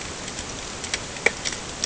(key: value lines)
label: ambient
recorder: HydroMoth